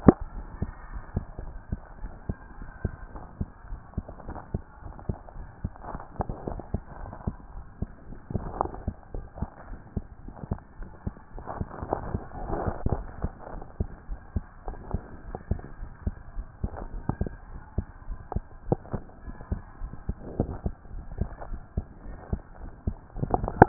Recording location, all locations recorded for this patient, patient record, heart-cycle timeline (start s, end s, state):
tricuspid valve (TV)
aortic valve (AV)+pulmonary valve (PV)+tricuspid valve (TV)
#Age: Child
#Sex: Male
#Height: 103.0 cm
#Weight: 18.7 kg
#Pregnancy status: False
#Murmur: Present
#Murmur locations: pulmonary valve (PV)+tricuspid valve (TV)
#Most audible location: pulmonary valve (PV)
#Systolic murmur timing: Holosystolic
#Systolic murmur shape: Plateau
#Systolic murmur grading: I/VI
#Systolic murmur pitch: Low
#Systolic murmur quality: Blowing
#Diastolic murmur timing: nan
#Diastolic murmur shape: nan
#Diastolic murmur grading: nan
#Diastolic murmur pitch: nan
#Diastolic murmur quality: nan
#Outcome: Abnormal
#Campaign: 2014 screening campaign
0.00	0.36	unannotated
0.36	0.46	S1
0.46	0.60	systole
0.60	0.70	S2
0.70	0.92	diastole
0.92	1.02	S1
1.02	1.14	systole
1.14	1.26	S2
1.26	1.45	diastole
1.45	1.58	S1
1.58	1.70	systole
1.70	1.80	S2
1.80	2.02	diastole
2.02	2.12	S1
2.12	2.28	systole
2.28	2.36	S2
2.36	2.58	diastole
2.58	2.70	S1
2.70	2.84	systole
2.84	2.94	S2
2.94	3.16	diastole
3.16	3.26	S1
3.26	3.40	systole
3.40	3.48	S2
3.48	3.70	diastole
3.70	3.80	S1
3.80	3.96	systole
3.96	4.02	S2
4.02	4.26	diastole
4.26	4.38	S1
4.38	4.52	systole
4.52	4.62	S2
4.62	4.84	diastole
4.84	4.94	S1
4.94	5.08	systole
5.08	5.16	S2
5.16	5.36	diastole
5.36	5.48	S1
5.48	5.62	systole
5.62	5.72	S2
5.72	5.92	diastole
5.92	23.68	unannotated